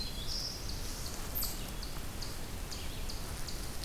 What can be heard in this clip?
Black-throated Green Warbler, Eastern Chipmunk